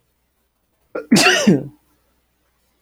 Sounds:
Sneeze